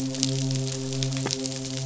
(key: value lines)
label: biophony, midshipman
recorder: SoundTrap 500